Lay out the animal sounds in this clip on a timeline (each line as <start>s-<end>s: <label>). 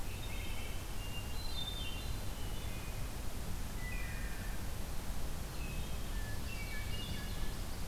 0.0s-0.9s: Wood Thrush (Hylocichla mustelina)
0.9s-2.3s: Hermit Thrush (Catharus guttatus)
2.3s-3.2s: Wood Thrush (Hylocichla mustelina)
3.6s-4.6s: Wood Thrush (Hylocichla mustelina)
5.5s-6.2s: Wood Thrush (Hylocichla mustelina)
6.1s-7.9s: Common Yellowthroat (Geothlypis trichas)
6.2s-7.6s: Hermit Thrush (Catharus guttatus)